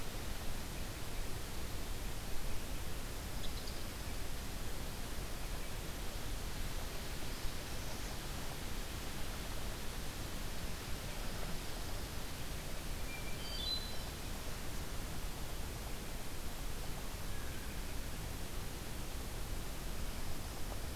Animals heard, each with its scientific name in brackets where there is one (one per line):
Black-throated Blue Warbler (Setophaga caerulescens)
Hermit Thrush (Catharus guttatus)